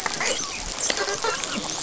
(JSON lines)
{"label": "biophony, dolphin", "recorder": "SoundTrap 500"}